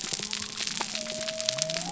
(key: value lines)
label: biophony
recorder: SoundTrap 300